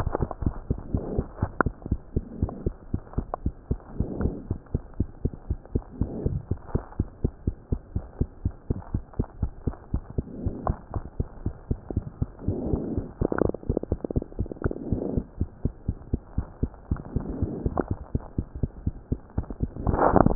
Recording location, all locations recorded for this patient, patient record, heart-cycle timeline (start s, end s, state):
mitral valve (MV)
aortic valve (AV)+pulmonary valve (PV)+tricuspid valve (TV)+mitral valve (MV)
#Age: Child
#Sex: Male
#Height: 90.0 cm
#Weight: 13.9 kg
#Pregnancy status: False
#Murmur: Absent
#Murmur locations: nan
#Most audible location: nan
#Systolic murmur timing: nan
#Systolic murmur shape: nan
#Systolic murmur grading: nan
#Systolic murmur pitch: nan
#Systolic murmur quality: nan
#Diastolic murmur timing: nan
#Diastolic murmur shape: nan
#Diastolic murmur grading: nan
#Diastolic murmur pitch: nan
#Diastolic murmur quality: nan
#Outcome: Normal
#Campaign: 2015 screening campaign
0.00	4.36	unannotated
4.36	4.48	diastole
4.48	4.58	S1
4.58	4.70	systole
4.70	4.82	S2
4.82	4.98	diastole
4.98	5.08	S1
5.08	5.22	systole
5.22	5.32	S2
5.32	5.48	diastole
5.48	5.58	S1
5.58	5.72	systole
5.72	5.82	S2
5.82	5.98	diastole
5.98	6.12	S1
6.12	6.22	systole
6.22	6.34	S2
6.34	6.48	diastole
6.48	6.58	S1
6.58	6.70	systole
6.70	6.82	S2
6.82	6.96	diastole
6.96	7.08	S1
7.08	7.20	systole
7.20	7.32	S2
7.32	7.46	diastole
7.46	7.56	S1
7.56	7.68	systole
7.68	7.80	S2
7.80	7.94	diastole
7.94	8.04	S1
8.04	8.16	systole
8.16	8.28	S2
8.28	8.44	diastole
8.44	8.54	S1
8.54	8.66	systole
8.66	8.78	S2
8.78	8.92	diastole
8.92	9.04	S1
9.04	9.16	systole
9.16	9.26	S2
9.26	9.40	diastole
9.40	9.52	S1
9.52	9.64	systole
9.64	9.74	S2
9.74	9.92	diastole
9.92	10.02	S1
10.02	10.16	systole
10.16	10.26	S2
10.26	10.40	diastole
10.40	10.54	S1
10.54	10.66	systole
10.66	10.76	S2
10.76	10.92	diastole
10.92	11.04	S1
11.04	11.18	systole
11.18	11.28	S2
11.28	11.44	diastole
11.44	11.54	S1
11.54	11.68	systole
11.68	11.82	S2
11.82	11.94	diastole
11.94	12.08	S1
12.08	12.20	systole
12.20	12.30	S2
12.30	12.46	diastole
12.46	20.35	unannotated